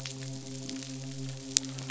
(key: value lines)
label: biophony, midshipman
recorder: SoundTrap 500